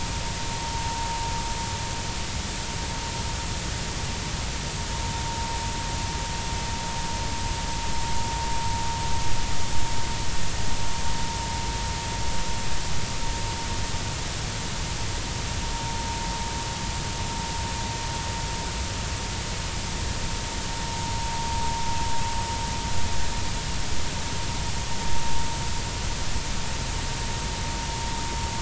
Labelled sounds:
15.7	16.0	vessel noise, 0.86 to 0.96 kHz

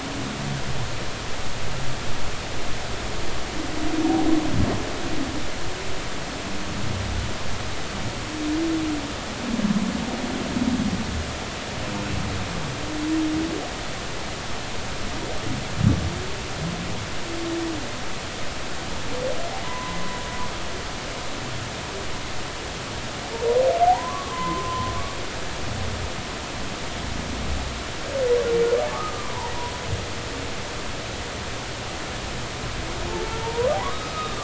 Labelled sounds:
19.6	20.0	humpback whale, 0.93 to 1.1 kHz
23.9	24.9	humpback whale, 0.80 to 3.4 kHz
28.9	29.3	humpback whale, 0.96 to 1.3 kHz
33.2	34.4	humpback whale, 0.86 to 3.8 kHz

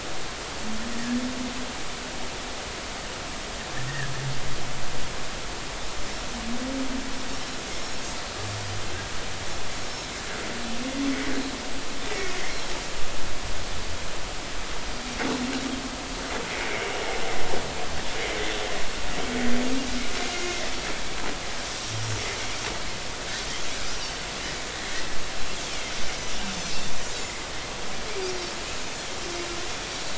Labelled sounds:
20.3	20.6	Pacific white-sided dolphin, 2.0 to 2.2 kHz

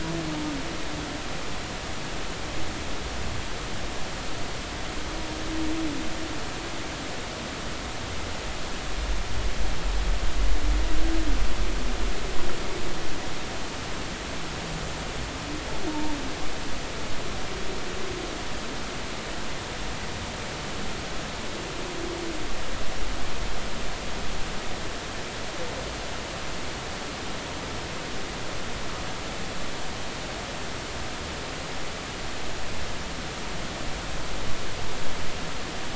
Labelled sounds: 15.9	16.2	humpback whale, 0.83 to 0.96 kHz

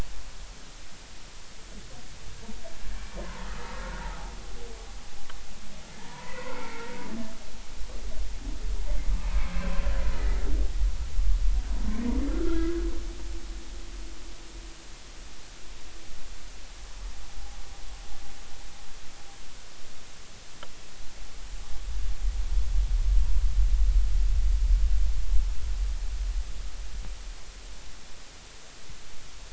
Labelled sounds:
3.4	4.1	humpback whale, 1.2 to 1.5 kHz
5.9	6.9	humpback whale, 0.83 to 2.3 kHz
9.2	9.5	humpback whale, 2.1 to 2.6 kHz
11.9	12.9	humpback whale, 1.2 to 2.3 kHz

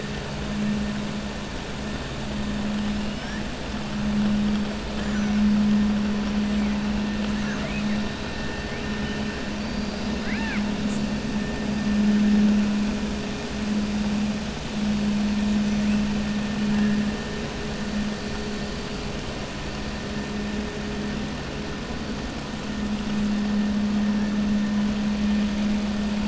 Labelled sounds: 7.3	7.9	killer whale, 0.64 to 3.3 kHz
9.6	10.7	killer whale, 0.90 to 5.0 kHz

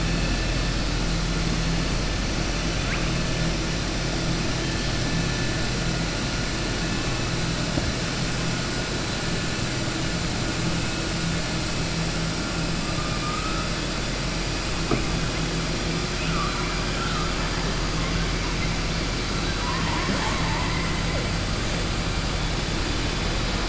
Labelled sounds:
16.1	16.7	killer whale, southern resident, 1.1 to 4.0 kHz

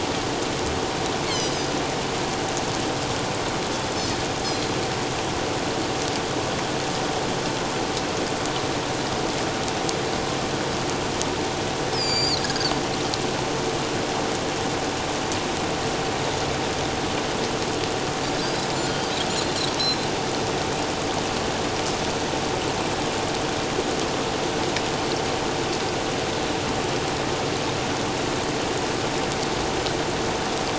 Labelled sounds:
1.3	1.7	Pacific white-sided dolphin, 3.8 to 5.3 kHz
4.4	4.7	Pacific white-sided dolphin, 4.0 to 4.4 kHz
11.9	12.7	Pacific white-sided dolphin, 1.4 to 7.4 kHz
19.3	19.6	Pacific white-sided dolphin, 3.9 to 4.3 kHz

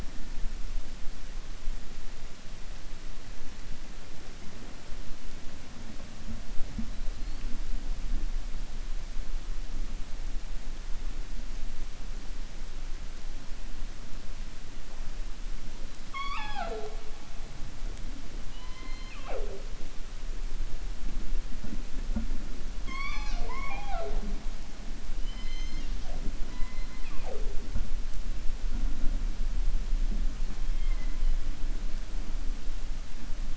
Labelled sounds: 16.0	17.0	killer whale, 0.43 to 5.5 kHz
22.7	24.3	killer whale, 0.36 to 6.5 kHz
25.1	25.9	killer whale, 1.9 to 6.4 kHz

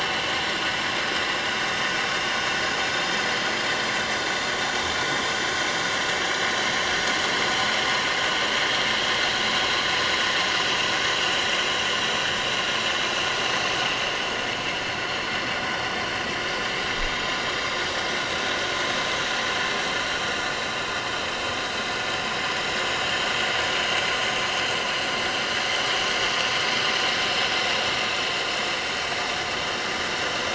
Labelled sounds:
21.4	21.7	vessel noise, 6.7 to 6.9 kHz
27.3	27.7	vessel noise, 5.1 to 5.3 kHz
29.0	29.2	vessel noise, 7.6 to 8.0 kHz

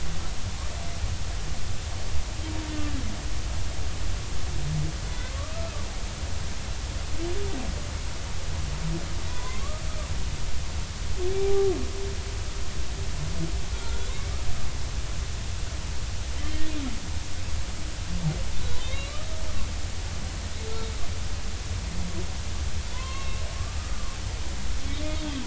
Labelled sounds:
5.1	5.4	humpback whale, 2.0 to 2.1 kHz
9.3	9.8	humpback whale, 0.90 to 1.3 kHz
11.3	11.7	humpback whale, 0.80 to 0.83 kHz
13.8	14.1	humpback whale, 1.3 to 1.5 kHz
18.8	19.3	humpback whale, 0.99 to 4.0 kHz
22.9	24.2	humpback whale, 0.93 to 3.3 kHz

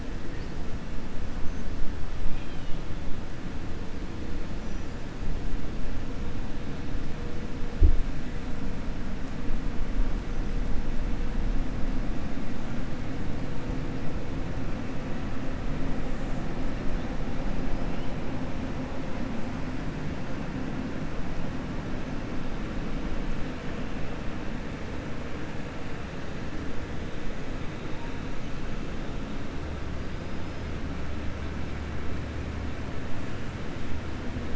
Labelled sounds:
2.2	2.8	killer whale, 2.4 to 4.6 kHz

